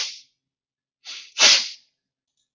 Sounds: Sneeze